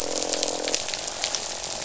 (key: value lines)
label: biophony, croak
recorder: SoundTrap 500